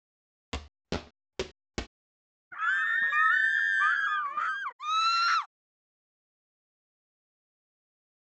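At 0.51 seconds, someone walks quietly. Then at 2.51 seconds, someone screams. Finally, at 4.78 seconds, screaming is audible.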